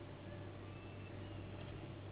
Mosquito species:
Anopheles gambiae s.s.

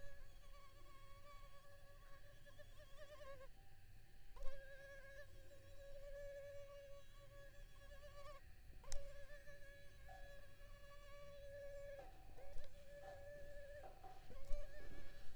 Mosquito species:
Culex pipiens complex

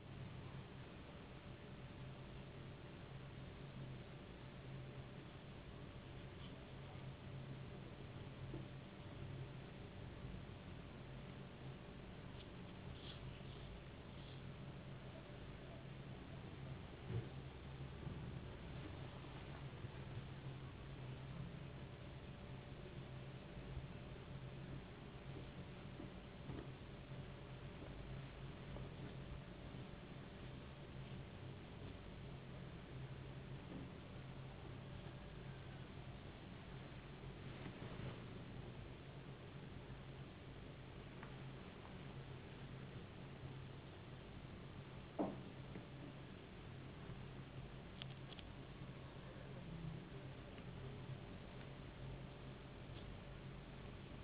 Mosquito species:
no mosquito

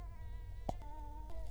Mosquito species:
Culex quinquefasciatus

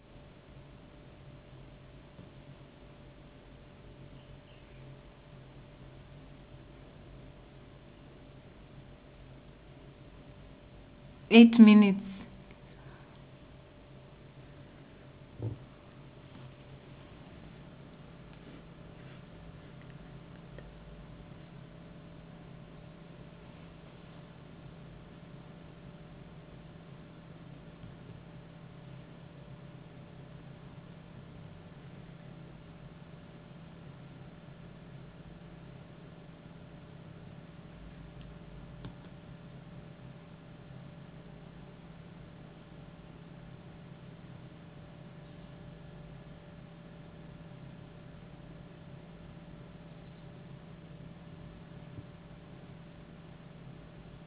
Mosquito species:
no mosquito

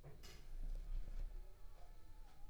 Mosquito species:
Anopheles arabiensis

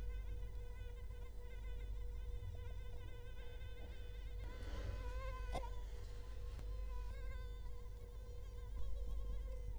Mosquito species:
Culex quinquefasciatus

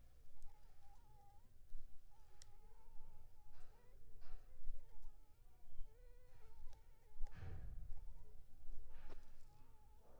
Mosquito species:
Anopheles funestus s.s.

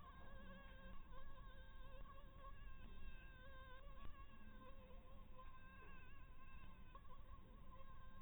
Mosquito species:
Anopheles harrisoni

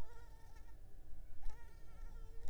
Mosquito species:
Mansonia uniformis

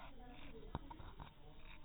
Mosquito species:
no mosquito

